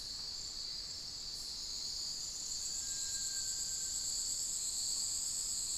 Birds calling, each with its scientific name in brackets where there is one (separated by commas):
Little Tinamou (Crypturellus soui)